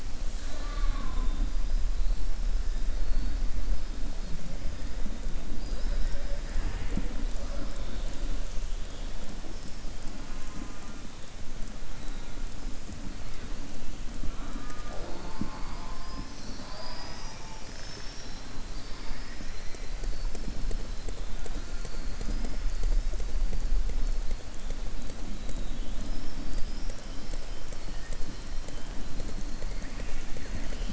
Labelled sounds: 18.9	19.8	killer whale, southern resident, 1.2 to 3.0 kHz

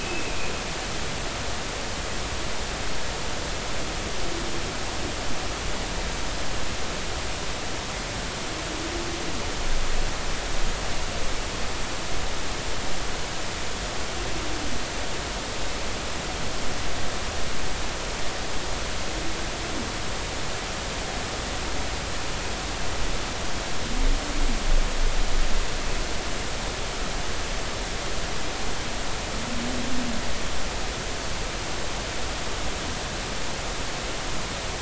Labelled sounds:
0.0	0.4	humpback whale, 2.4 to 2.7 kHz

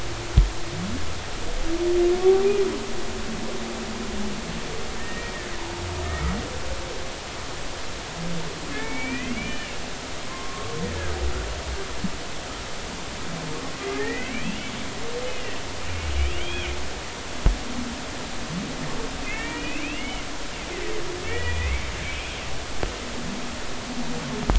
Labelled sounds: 5.0	5.8	humpback whale, 0.83 to 1.9 kHz
8.7	9.8	humpback whale, 0.86 to 3.0 kHz
10.3	10.8	humpback whale, 0.99 to 1.2 kHz
13.5	14.5	humpback whale, 1.1 to 2.7 kHz
15.3	15.5	humpback whale, 2.6 to 3.0 kHz
16.0	16.7	humpback whale, 2.1 to 3.4 kHz
19.2	20.3	humpback whale, 1.7 to 3.1 kHz
21.3	21.8	humpback whale, 1.7 to 2.8 kHz

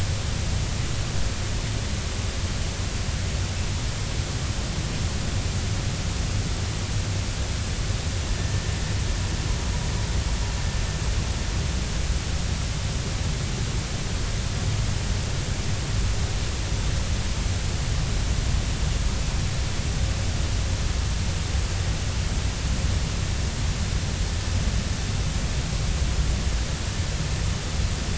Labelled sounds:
8.3	8.6	vessel noise, 1.7 to 1.8 kHz

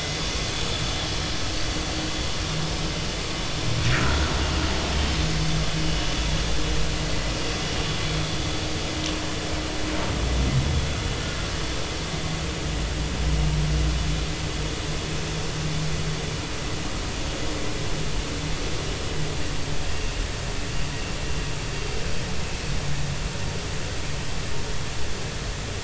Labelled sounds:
3.9	4.3	vessel noise, 1.3 to 1.6 kHz
5.8	6.1	vessel noise, 2.8 to 3.0 kHz
19.8	20.2	vessel noise, 2.6 to 2.8 kHz

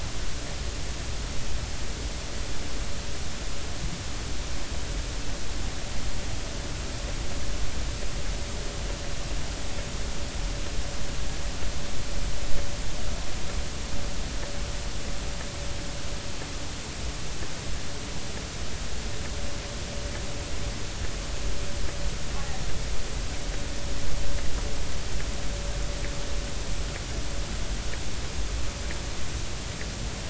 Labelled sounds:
22.4	22.6	killer whale, northern resident, R clan, 0.80 to 0.90 kHz

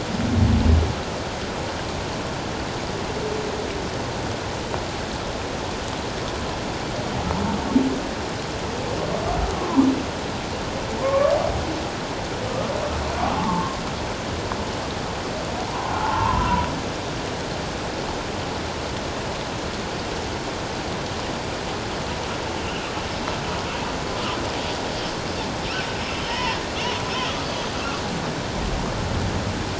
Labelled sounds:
9.6	9.8	humpback whale, 0.91 to 1.1 kHz
11.0	11.3	humpback whale, 0.88 to 1.2 kHz
13.4	13.8	humpback whale, 0.81 to 1.2 kHz
15.7	16.7	humpback whale, 0.81 to 1.1 kHz
26.2	26.6	humpback whale, 0.84 to 3.2 kHz

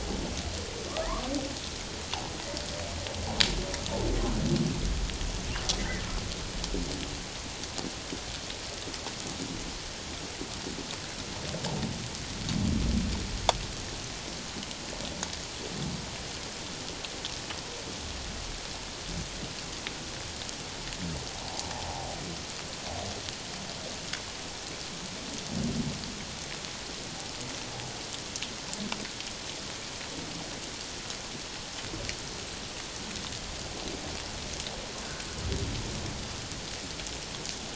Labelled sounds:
5.8	6.0	humpback whale, 1.7 to 2.1 kHz
21.3	22.2	humpback whale, 0.78 to 1.0 kHz

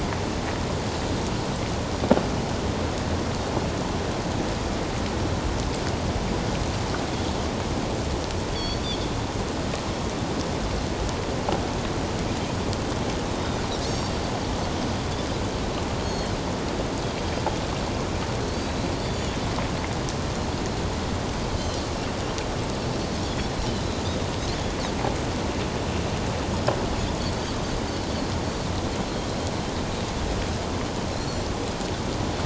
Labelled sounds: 8.5	9.1	Pacific white-sided dolphin, 3.2 to 4.7 kHz
13.3	14.1	Pacific white-sided dolphin, 3.5 to 6.6 kHz
16.0	16.3	Pacific white-sided dolphin, 4.2 to 6.6 kHz
18.6	19.4	Pacific white-sided dolphin, 3.3 to 4.2 kHz
21.6	21.9	Pacific white-sided dolphin, 4.0 to 4.4 kHz
31.1	31.5	Pacific white-sided dolphin, 4.0 to 4.5 kHz

